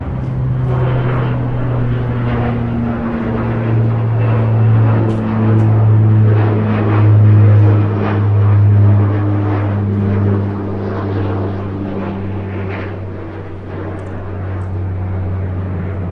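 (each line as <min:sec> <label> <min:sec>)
0:00.1 Several aircraft flying with overlapping noises. 0:13.2
0:13.2 Aircraft flying in the distance. 0:16.1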